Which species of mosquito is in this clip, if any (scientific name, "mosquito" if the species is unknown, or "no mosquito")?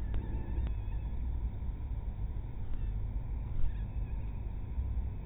mosquito